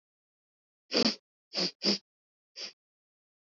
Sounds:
Sniff